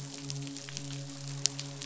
{"label": "biophony, midshipman", "recorder": "SoundTrap 500"}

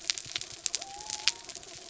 {"label": "biophony", "recorder": "SoundTrap 300"}
{"label": "anthrophony, mechanical", "recorder": "SoundTrap 300"}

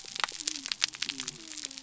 {"label": "biophony", "recorder": "SoundTrap 300"}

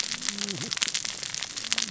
{"label": "biophony, cascading saw", "recorder": "SoundTrap 600 or HydroMoth"}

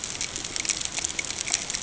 {"label": "ambient", "recorder": "HydroMoth"}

